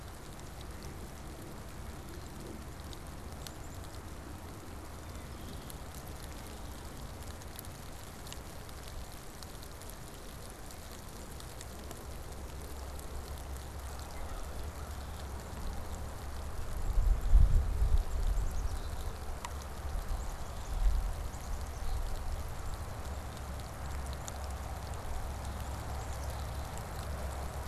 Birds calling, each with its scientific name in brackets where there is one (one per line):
Black-capped Chickadee (Poecile atricapillus)